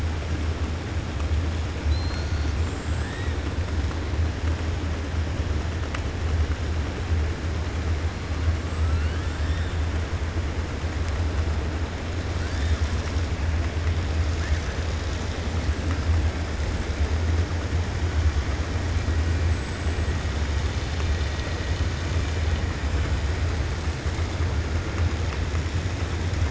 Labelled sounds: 8.6	9.4	killer whale, 7.3 to 8.0 kHz

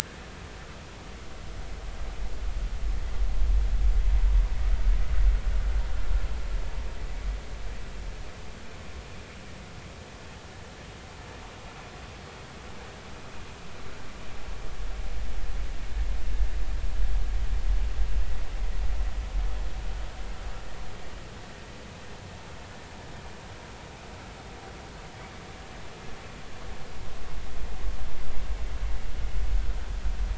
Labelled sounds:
0.0	0.3	vessel noise, 1.5 to 1.8 kHz

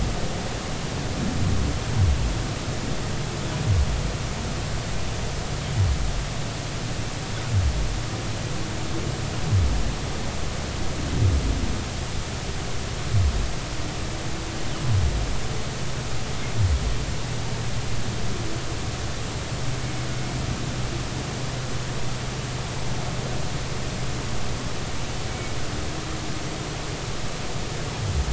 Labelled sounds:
25.3	25.6	humpback whale, 2.2 to 2.4 kHz

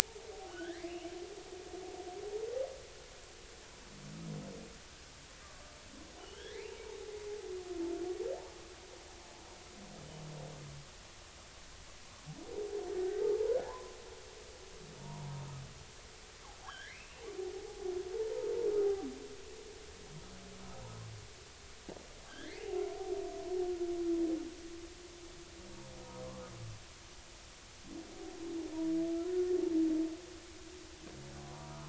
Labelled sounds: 0.5	0.9	killer whale, offshore, 1.3 to 3.5 kHz
6.2	6.8	killer whale, offshore, 1.5 to 5.7 kHz
13.0	13.4	humpback whale, 0.80 to 0.93 kHz
13.7	14.0	humpback whale, 0.83 to 1.1 kHz
16.0	16.4	humpback whale, 0.86 to 1.1 kHz
16.6	17.2	killer whale, offshore, 0.80 to 5.7 kHz
22.3	22.7	killer whale, offshore, 1.5 to 3.7 kHz
29.1	29.5	humpback whale, 1.3 to 1.5 kHz
31.5	31.8	humpback whale, 0.90 to 1.1 kHz

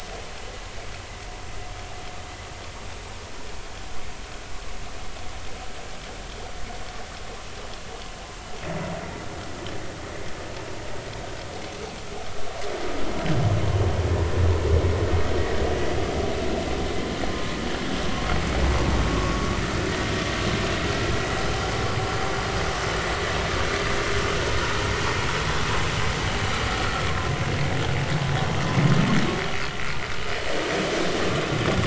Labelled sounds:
18.0	18.3	vessel noise, 1.0 to 1.2 kHz
19.1	19.5	vessel noise, 0.99 to 1.2 kHz

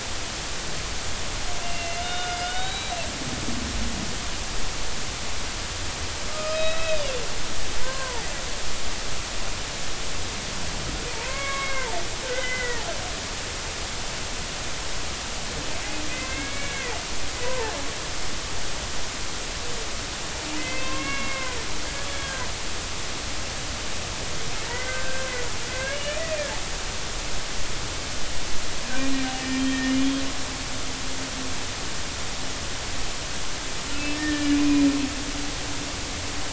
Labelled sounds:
1.6	3.0	humpback whale, 1.4 to 4.0 kHz
6.3	7.1	humpback whale, 1.2 to 3.9 kHz
7.8	8.3	humpback whale, 0.80 to 1.6 kHz
11.1	11.9	humpback whale, 0.86 to 2.3 kHz
12.2	12.9	humpback whale, 1.4 to 2.1 kHz
16.1	16.9	humpback whale, 1.5 to 2.7 kHz
17.4	17.7	humpback whale, 0.80 to 1.1 kHz
20.6	22.6	humpback whale, 0.96 to 3.4 kHz
24.7	25.3	humpback whale, 1.4 to 2.1 kHz
25.7	26.2	humpback whale, 1.5 to 3.0 kHz
29.3	29.9	humpback whale, 1.8 to 1.9 kHz
33.9	34.9	humpback whale, 1.7 to 2.7 kHz

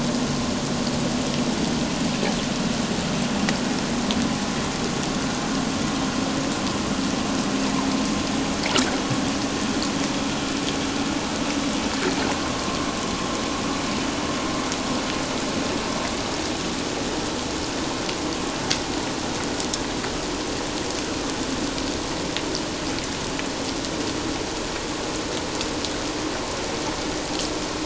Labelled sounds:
12.3	12.6	vessel noise, 1.0 to 1.2 kHz

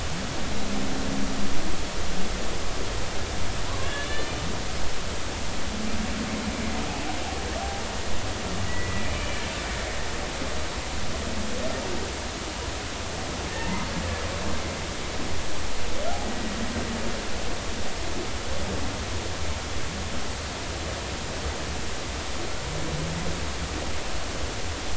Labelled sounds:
3.7	4.3	killer whale, Bigg's (transient), 0.96 to 3.6 kHz
8.6	9.4	killer whale, Bigg's (transient), 1.9 to 2.5 kHz
13.6	13.9	killer whale, Bigg's (transient), 0.83 to 1.1 kHz

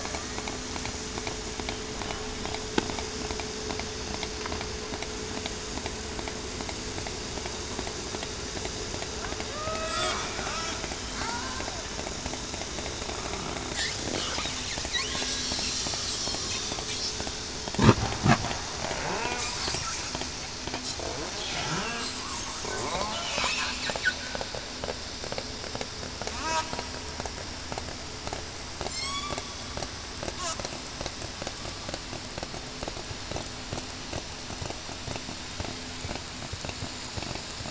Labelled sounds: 9.5	10.0	killer whale, southern resident, 1.2 to 2.6 kHz
28.9	29.2	killer whale, southern resident, 7.1 to 8.0 kHz

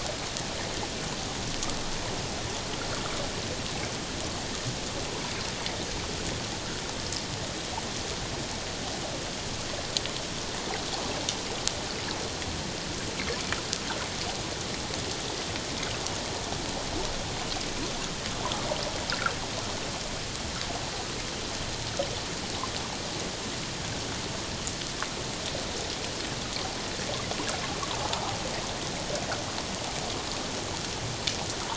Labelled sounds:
27.9	28.3	water noise, 0.78 to 1.0 kHz

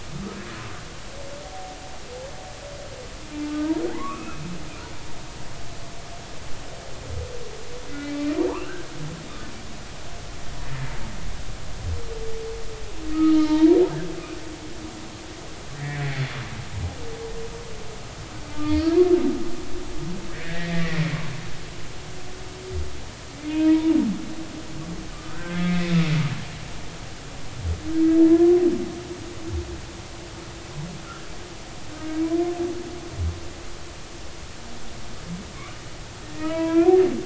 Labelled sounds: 3.5	4.4	humpback whale, 0.83 to 2.7 kHz
7.9	8.9	humpback whale, 0.86 to 2.5 kHz
13.1	13.6	humpback whale, 1.2 to 3.2 kHz
15.7	16.1	humpback whale, 1.7 to 2.4 kHz
18.6	18.9	humpback whale, 1.8 to 4.7 kHz
20.3	21.0	humpback whale, 1.6 to 2.1 kHz
23.5	23.9	humpback whale, 0.90 to 3.3 kHz
25.1	25.9	humpback whale, 1.1 to 3.4 kHz
27.9	28.2	humpback whale, 1.6 to 1.7 kHz
36.2	36.9	humpback whale, 0.90 to 2.7 kHz

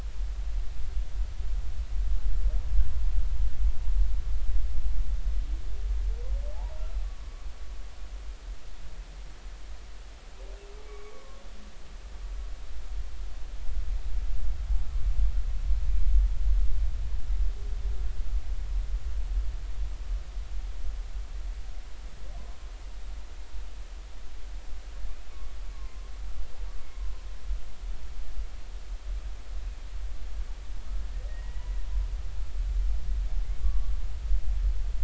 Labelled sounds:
6.5	6.8	humpback whale, 0.80 to 1.0 kHz
7.0	7.5	humpback whale, 1.0 to 1.2 kHz
10.8	11.4	humpback whale, 1.0 to 2.4 kHz
15.9	16.1	humpback whale, 2.2 to 2.5 kHz
25.3	26.1	humpback whale, 0.99 to 1.2 kHz
31.3	31.8	humpback whale, 1.8 to 2.0 kHz
33.6	33.9	humpback whale, 1.1 to 1.2 kHz

